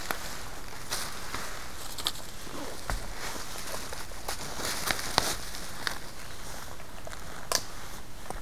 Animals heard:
forest ambience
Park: Katahdin Woods and Waters National Monument